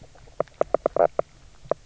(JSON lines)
{"label": "biophony, knock croak", "recorder": "SoundTrap 300"}